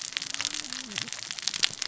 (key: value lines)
label: biophony, cascading saw
recorder: SoundTrap 600 or HydroMoth